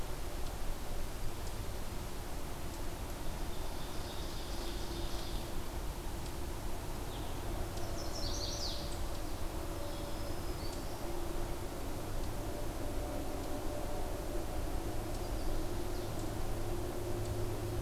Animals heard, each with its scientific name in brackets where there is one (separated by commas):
Eastern Chipmunk (Tamias striatus), Ovenbird (Seiurus aurocapilla), Black-throated Green Warbler (Setophaga virens), Chestnut-sided Warbler (Setophaga pensylvanica)